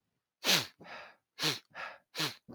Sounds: Sniff